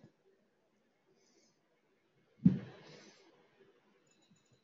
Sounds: Sniff